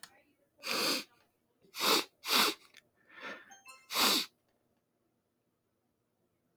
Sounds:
Sniff